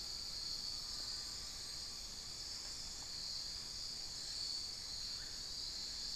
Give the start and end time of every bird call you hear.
0.0s-2.2s: Amazonian Pygmy-Owl (Glaucidium hardyi)
4.8s-5.6s: unidentified bird

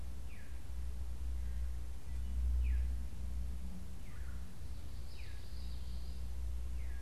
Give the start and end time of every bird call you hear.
0.0s-3.4s: Veery (Catharus fuscescens)
4.1s-4.5s: Red-bellied Woodpecker (Melanerpes carolinus)
4.7s-7.0s: Veery (Catharus fuscescens)
4.9s-6.4s: Common Yellowthroat (Geothlypis trichas)

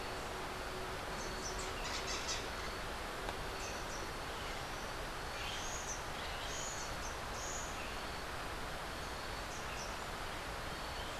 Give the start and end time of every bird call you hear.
1.2s-2.5s: Crimson-fronted Parakeet (Psittacara finschi)
3.5s-4.2s: Rufous-tailed Hummingbird (Amazilia tzacatl)
5.4s-6.2s: Rufous-tailed Hummingbird (Amazilia tzacatl)
9.5s-10.0s: Rufous-tailed Hummingbird (Amazilia tzacatl)

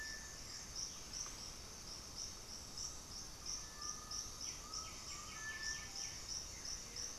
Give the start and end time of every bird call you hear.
0.0s-1.4s: Blue-gray Saltator (Saltator coerulescens)
0.0s-7.2s: Cinereous Tinamou (Crypturellus cinereus)
3.4s-5.7s: Undulated Tinamou (Crypturellus undulatus)
4.4s-6.7s: White-winged Becard (Pachyramphus polychopterus)
6.6s-7.2s: Blue-gray Saltator (Saltator coerulescens)

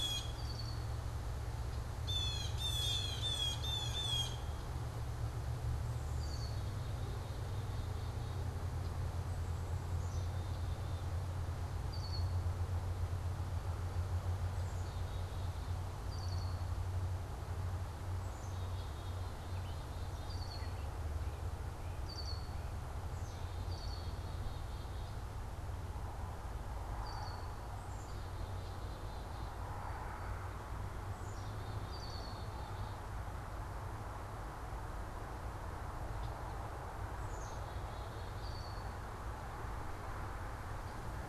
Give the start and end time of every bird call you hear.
0.0s-4.5s: Blue Jay (Cyanocitta cristata)
0.2s-1.0s: Red-winged Blackbird (Agelaius phoeniceus)
6.0s-6.8s: Red-winged Blackbird (Agelaius phoeniceus)
6.4s-25.3s: Black-capped Chickadee (Poecile atricapillus)
11.7s-12.5s: Red-winged Blackbird (Agelaius phoeniceus)
16.0s-16.8s: Red-winged Blackbird (Agelaius phoeniceus)
20.1s-24.2s: Red-winged Blackbird (Agelaius phoeniceus)
26.9s-27.6s: Red-winged Blackbird (Agelaius phoeniceus)
27.5s-41.3s: Black-capped Chickadee (Poecile atricapillus)
31.8s-32.5s: Red-winged Blackbird (Agelaius phoeniceus)
38.3s-39.0s: Red-winged Blackbird (Agelaius phoeniceus)

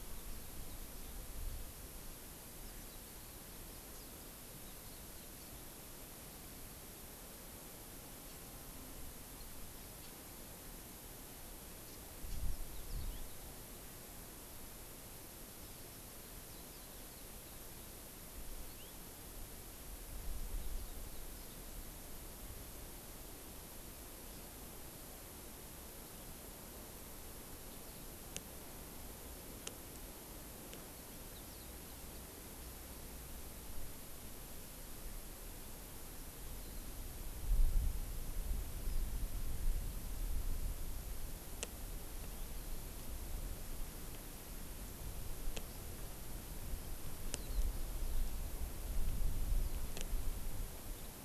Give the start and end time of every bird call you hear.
2.6s-5.6s: Warbling White-eye (Zosterops japonicus)
9.9s-10.3s: Red-billed Leiothrix (Leiothrix lutea)
11.8s-12.5s: Red-billed Leiothrix (Leiothrix lutea)
18.6s-19.0s: Hawaii Amakihi (Chlorodrepanis virens)

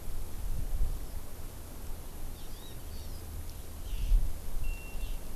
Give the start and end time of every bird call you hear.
2.3s-3.2s: Hawaii Amakihi (Chlorodrepanis virens)

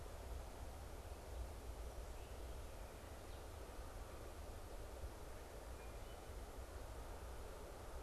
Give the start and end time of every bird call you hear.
5.4s-6.3s: Wood Thrush (Hylocichla mustelina)

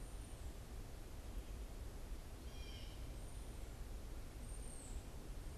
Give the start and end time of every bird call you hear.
0.0s-3.3s: Blue Jay (Cyanocitta cristata)
0.0s-5.5s: unidentified bird

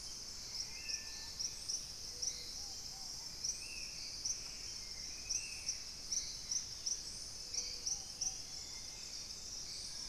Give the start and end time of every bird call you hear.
0.0s-1.9s: Thrush-like Wren (Campylorhynchus turdinus)
0.0s-10.1s: Hauxwell's Thrush (Turdus hauxwelli)
0.0s-10.1s: Ruddy Pigeon (Patagioenas subvinacea)
0.0s-10.1s: Spot-winged Antshrike (Pygiptila stellaris)
3.1s-4.5s: Purple-throated Fruitcrow (Querula purpurata)
6.1s-7.2s: Dusky-capped Greenlet (Pachysylvia hypoxantha)
7.5s-10.1s: Dusky-throated Antshrike (Thamnomanes ardesiacus)
9.6s-10.1s: Collared Trogon (Trogon collaris)

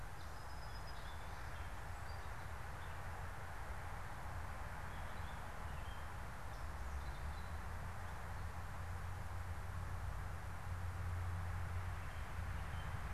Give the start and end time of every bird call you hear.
0.0s-2.7s: Song Sparrow (Melospiza melodia)
4.5s-7.7s: Gray Catbird (Dumetella carolinensis)

